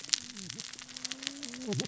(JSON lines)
{"label": "biophony, cascading saw", "recorder": "SoundTrap 600 or HydroMoth"}